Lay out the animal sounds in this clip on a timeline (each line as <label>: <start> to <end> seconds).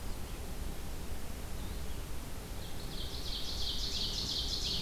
Ovenbird (Seiurus aurocapilla): 2.4 to 4.8 seconds